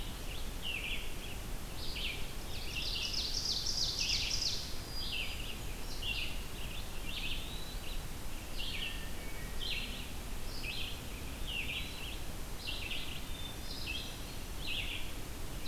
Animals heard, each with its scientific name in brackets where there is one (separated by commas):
Hermit Thrush (Catharus guttatus), Ovenbird (Seiurus aurocapilla), Eastern Wood-Pewee (Contopus virens), Red-eyed Vireo (Vireo olivaceus)